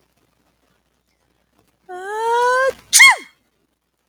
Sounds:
Sneeze